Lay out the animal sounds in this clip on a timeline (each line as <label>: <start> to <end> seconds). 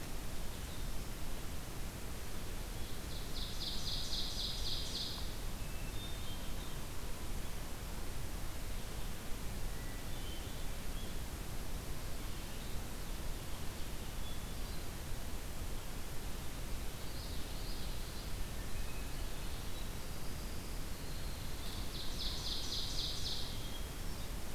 Ovenbird (Seiurus aurocapilla): 2.9 to 5.4 seconds
Hermit Thrush (Catharus guttatus): 5.6 to 6.4 seconds
Hermit Thrush (Catharus guttatus): 9.7 to 10.6 seconds
Hermit Thrush (Catharus guttatus): 14.0 to 15.0 seconds
Common Yellowthroat (Geothlypis trichas): 16.9 to 18.4 seconds
Winter Wren (Troglodytes hiemalis): 19.4 to 22.4 seconds
Ovenbird (Seiurus aurocapilla): 21.5 to 23.7 seconds
Hermit Thrush (Catharus guttatus): 23.4 to 24.5 seconds